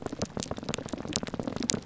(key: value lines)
label: biophony, pulse
recorder: SoundTrap 300